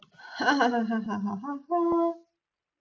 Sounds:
Laughter